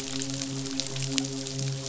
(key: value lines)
label: biophony, midshipman
recorder: SoundTrap 500